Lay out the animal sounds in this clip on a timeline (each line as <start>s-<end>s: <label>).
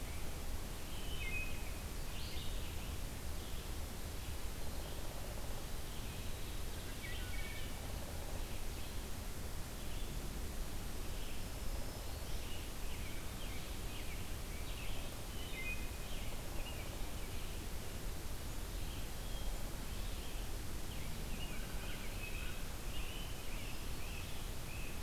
0.0s-21.6s: Red-eyed Vireo (Vireo olivaceus)
0.7s-1.6s: Wood Thrush (Hylocichla mustelina)
7.0s-7.8s: Wood Thrush (Hylocichla mustelina)
11.3s-12.5s: Black-throated Green Warbler (Setophaga virens)
12.2s-17.0s: American Robin (Turdus migratorius)
15.3s-16.0s: Wood Thrush (Hylocichla mustelina)
21.4s-25.0s: American Robin (Turdus migratorius)
21.5s-22.6s: American Crow (Corvus brachyrhynchos)